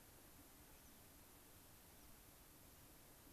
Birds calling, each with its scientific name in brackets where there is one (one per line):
Cassin's Finch (Haemorhous cassinii)
American Pipit (Anthus rubescens)